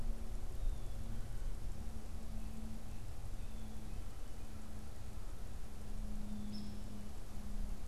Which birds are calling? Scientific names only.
Dryobates villosus